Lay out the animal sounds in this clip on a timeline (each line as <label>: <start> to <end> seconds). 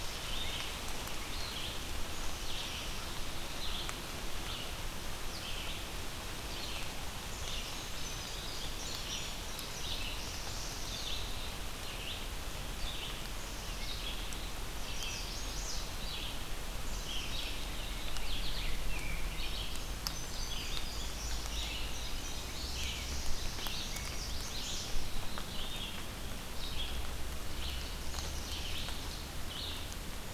Red-eyed Vireo (Vireo olivaceus): 0.0 to 30.3 seconds
Black-capped Chickadee (Poecile atricapillus): 2.0 to 3.1 seconds
Indigo Bunting (Passerina cyanea): 7.2 to 10.3 seconds
Black-throated Blue Warbler (Setophaga caerulescens): 9.6 to 11.2 seconds
Black-capped Chickadee (Poecile atricapillus): 13.3 to 14.0 seconds
Chestnut-sided Warbler (Setophaga pensylvanica): 14.7 to 16.0 seconds
Black-capped Chickadee (Poecile atricapillus): 16.8 to 17.9 seconds
Rose-breasted Grosbeak (Pheucticus ludovicianus): 17.8 to 19.5 seconds
Indigo Bunting (Passerina cyanea): 19.3 to 23.3 seconds
Black-throated Blue Warbler (Setophaga caerulescens): 22.6 to 24.1 seconds
Chestnut-sided Warbler (Setophaga pensylvanica): 23.9 to 24.9 seconds
Black-capped Chickadee (Poecile atricapillus): 28.1 to 28.8 seconds